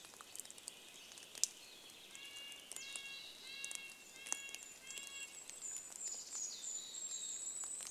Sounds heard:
Mountain Chickadee call, Red-breasted Nuthatch song, rain, Golden-crowned Kinglet song, Purple Finch song

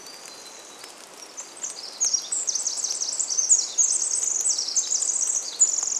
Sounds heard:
Pacific Wren song, rain, Hermit Warbler song

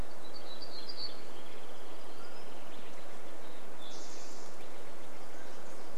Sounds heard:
warbler song, Nashville Warbler song, Steller's Jay call, Wrentit song, unidentified sound, Mountain Quail call, Spotted Towhee song

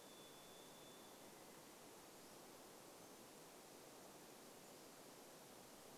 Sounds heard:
Pacific-slope Flycatcher song, Varied Thrush song

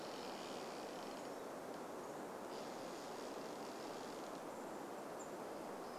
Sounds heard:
unidentified bird chip note, tree creak

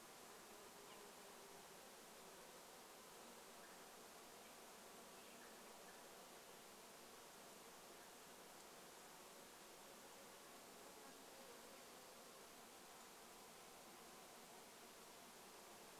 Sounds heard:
Dark-eyed Junco song, insect buzz, unidentified sound

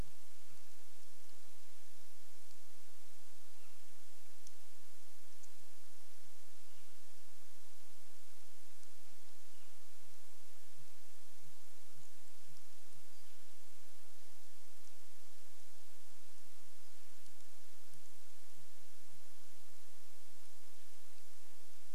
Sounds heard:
Northern Flicker call, Sooty Grouse song

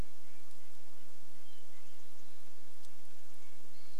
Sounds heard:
Red-breasted Nuthatch song, Hermit Thrush song, Western Wood-Pewee song

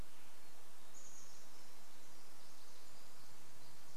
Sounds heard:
Chestnut-backed Chickadee call, Pacific Wren song

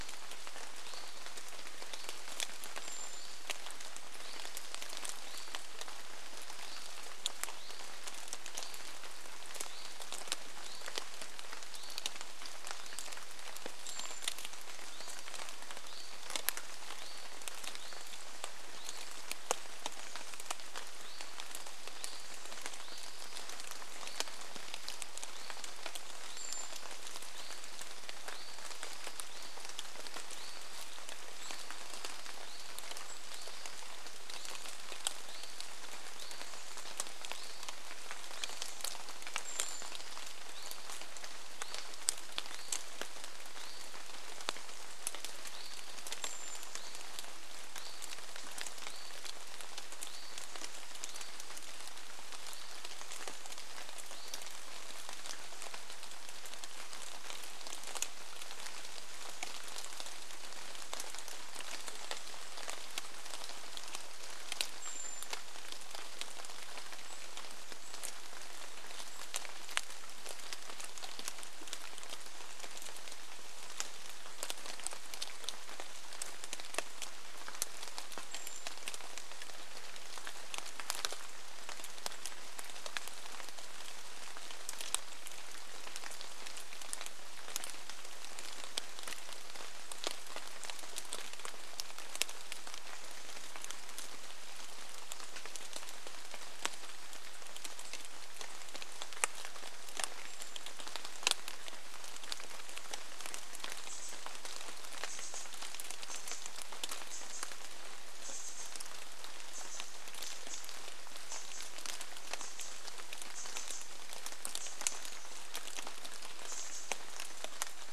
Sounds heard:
Brown Creeper call, Hutton's Vireo song, Chestnut-backed Chickadee call, rain

